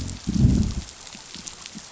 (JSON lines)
{"label": "biophony, growl", "recorder": "SoundTrap 500"}